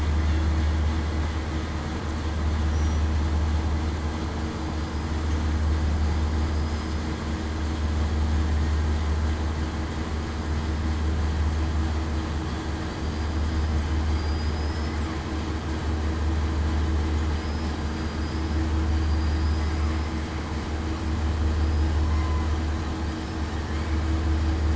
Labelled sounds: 14.1	14.9	killer whale, southern resident, 4.7 to 5.2 kHz
17.4	17.7	killer whale, southern resident, 4.8 to 5.1 kHz
22.1	22.5	killer whale, southern resident, 0.96 to 1.1 kHz

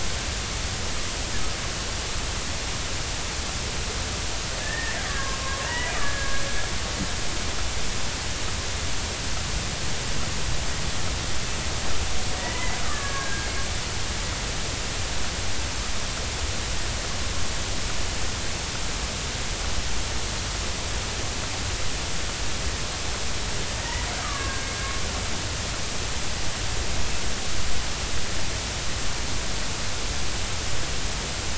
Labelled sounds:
4.6	6.3	killer whale, Bigg's (transient), 0.86 to 2.0 kHz
12.4	13.5	killer whale, Bigg's (transient), 1.0 to 2.1 kHz
24.2	24.7	killer whale, Bigg's (transient), 1.0 to 1.7 kHz

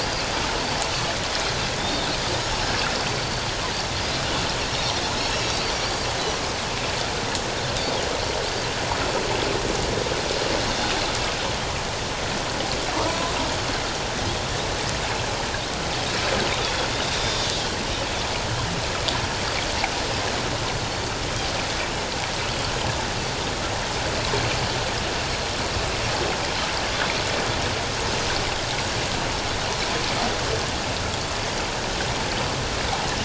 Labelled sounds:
1.8	2.1	Pacific white-sided dolphin, 3.4 to 3.7 kHz
3.1	3.5	Pacific white-sided dolphin, 4.5 to 4.6 kHz
5.2	6.1	Pacific white-sided dolphin, 4.4 to 6.8 kHz
16.6	17.5	Pacific white-sided dolphin, 3.2 to 5.7 kHz

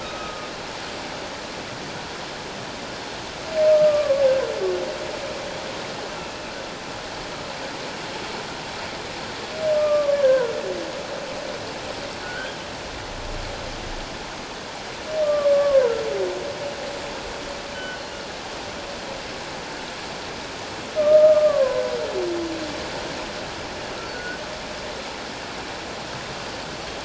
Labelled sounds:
0.0	0.5	humpback whale, 1.2 to 1.4 kHz
3.9	4.2	humpback whale, 1.0 to 1.2 kHz
6.2	6.5	humpback whale, 2.3 to 2.7 kHz
9.7	10.5	humpback whale, 1.1 to 1.8 kHz
12.2	12.6	humpback whale, 1.4 to 1.7 kHz
15.2	16.0	humpback whale, 0.91 to 1.7 kHz
17.7	18.0	humpback whale, 1.4 to 3.1 kHz
21.0	21.9	humpback whale, 0.97 to 1.7 kHz
24.0	24.4	humpback whale, 1.4 to 4.6 kHz

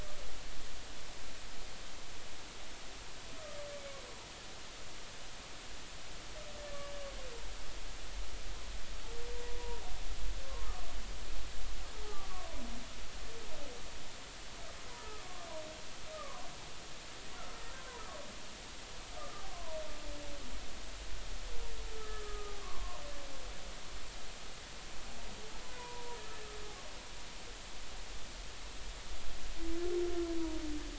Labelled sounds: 10.4	10.7	humpback whale, 0.93 to 1.1 kHz
12.1	12.5	humpback whale, 1.0 to 1.3 kHz
14.9	15.5	humpback whale, 0.80 to 1.3 kHz
16.1	16.5	humpback whale, 0.96 to 1.3 kHz
19.2	19.8	humpback whale, 0.86 to 1.3 kHz
21.9	23.0	humpback whale, 0.93 to 1.3 kHz
25.8	26.2	humpback whale, 0.90 to 1.1 kHz

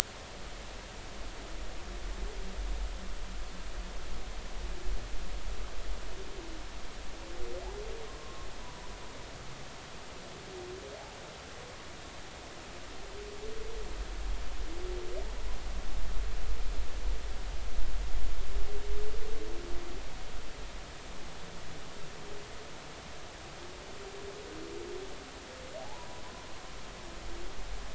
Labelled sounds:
8.1	8.9	humpback whale, 0.93 to 1.2 kHz
25.8	26.2	humpback whale, 0.80 to 1.0 kHz

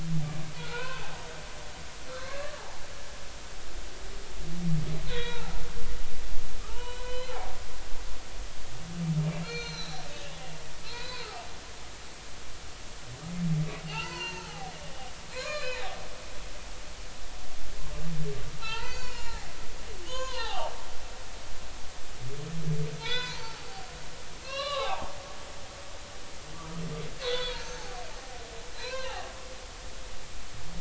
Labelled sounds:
0.5	1.1	humpback whale, 0.80 to 3.2 kHz
2.1	2.6	humpback whale, 1.0 to 4.2 kHz
5.0	5.6	humpback whale, 0.80 to 4.2 kHz
6.7	7.6	humpback whale, 0.80 to 4.2 kHz
9.4	10.0	humpback whale, 1.3 to 6.3 kHz
10.8	11.3	humpback whale, 2.3 to 4.1 kHz
13.9	14.7	humpback whale, 0.80 to 4.6 kHz
15.3	16.0	humpback whale, 0.80 to 4.4 kHz
18.6	20.7	humpback whale, 0.80 to 7.1 kHz
23.0	23.7	humpback whale, 0.80 to 5.1 kHz
24.4	25.1	humpback whale, 0.80 to 4.2 kHz
27.2	28.4	humpback whale, 0.80 to 4.6 kHz
28.8	29.3	humpback whale, 0.80 to 2.9 kHz

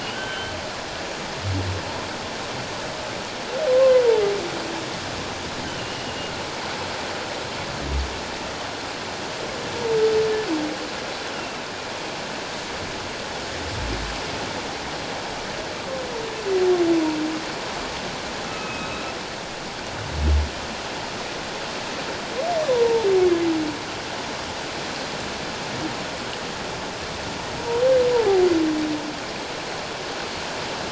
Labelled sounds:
0.0	0.5	humpback whale, 1.4 to 3.2 kHz
5.8	6.3	humpback whale, 2.7 to 3.0 kHz
11.3	11.6	humpback whale, 2.6 to 2.9 kHz
18.5	19.0	humpback whale, 2.3 to 3.9 kHz
22.7	23.1	humpback whale, 0.84 to 1.0 kHz
28.1	28.4	humpback whale, 0.78 to 1.0 kHz

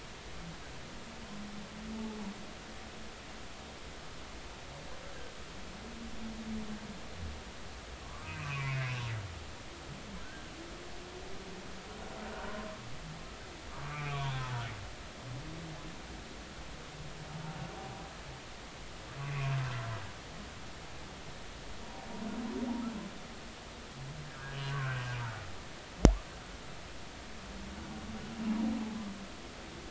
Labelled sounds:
8.0	9.0	humpback whale, 0.96 to 2.8 kHz
10.2	10.5	humpback whale, 1.3 to 1.7 kHz
12.3	12.7	humpback whale, 0.90 to 1.5 kHz
13.7	14.5	humpback whale, 0.90 to 3.7 kHz
19.2	19.6	humpback whale, 2.4 to 2.7 kHz
24.7	25.0	humpback whale, 1.3 to 1.6 kHz

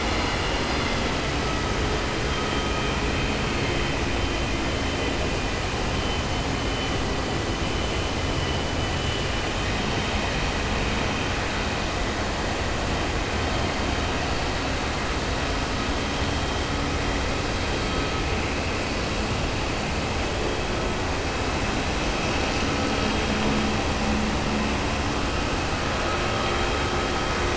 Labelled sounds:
2.2	2.9	vessel noise, 2.3 to 3.2 kHz

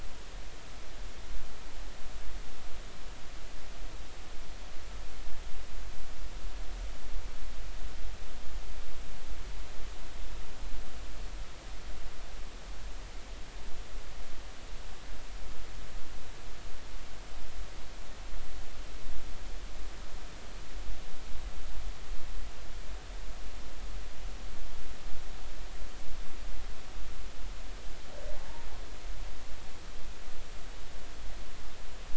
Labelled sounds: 28.4	28.7	humpback whale, 0.80 to 1.0 kHz

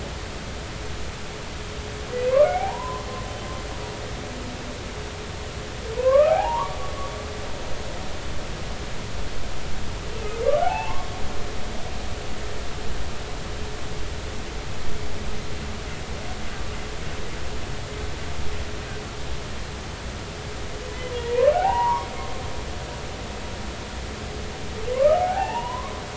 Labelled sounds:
2.4	3.0	humpback whale, 0.80 to 2.4 kHz
6.0	6.8	humpback whale, 0.80 to 1.4 kHz
10.6	11.1	humpback whale, 0.80 to 2.8 kHz
21.2	22.1	humpback whale, 0.80 to 2.1 kHz
24.9	26.0	humpback whale, 0.80 to 3.0 kHz

